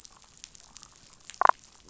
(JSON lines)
{"label": "biophony, damselfish", "recorder": "SoundTrap 500"}